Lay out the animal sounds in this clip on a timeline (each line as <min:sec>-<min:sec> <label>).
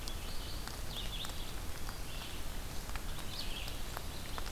0:00.0-0:04.5 Red-eyed Vireo (Vireo olivaceus)